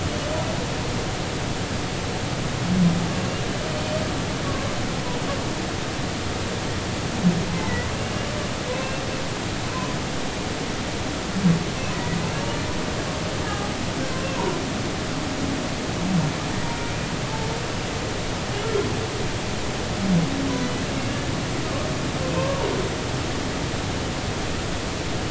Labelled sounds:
7.5	8.2	humpback whale, 1.9 to 2.8 kHz
8.7	9.0	humpback whale, 2.6 to 2.8 kHz
9.7	10.0	humpback whale, 0.93 to 1.1 kHz
12.2	12.4	humpback whale, 2.5 to 2.8 kHz
21.0	21.3	humpback whale, 1.7 to 2.9 kHz
22.4	22.6	humpback whale, 0.99 to 1.2 kHz

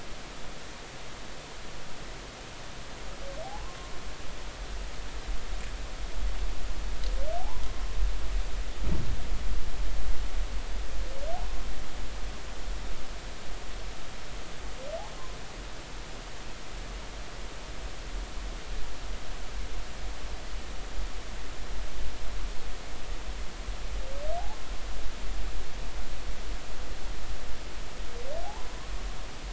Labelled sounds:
3.4	3.8	humpback whale, 0.80 to 1.1 kHz
7.4	7.7	humpback whale, 0.80 to 1.1 kHz
28.4	28.7	humpback whale, 0.80 to 1.1 kHz

